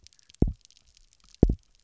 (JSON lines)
{"label": "biophony, double pulse", "recorder": "SoundTrap 300"}